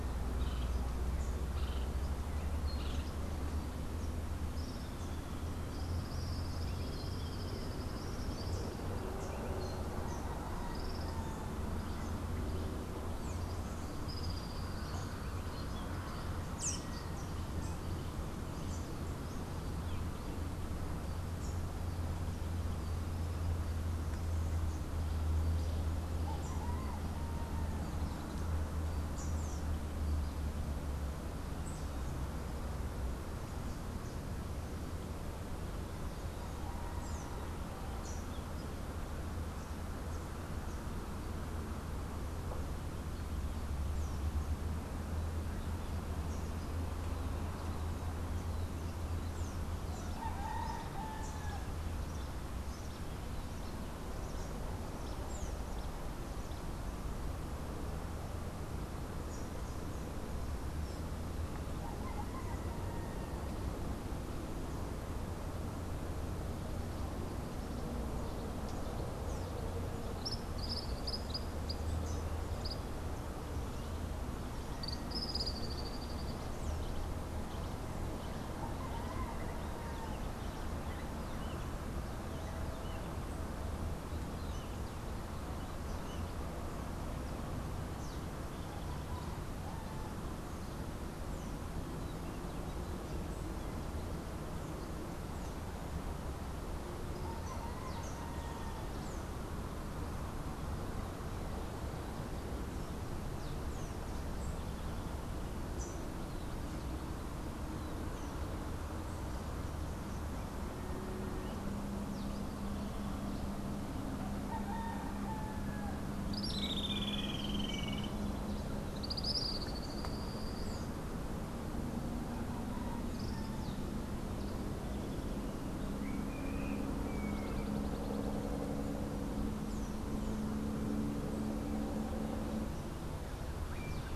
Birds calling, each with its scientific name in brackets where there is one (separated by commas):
Blue-gray Tanager (Thraupis episcopus), Streak-headed Woodcreeper (Lepidocolaptes souleyetii), Tropical Kingbird (Tyrannus melancholicus)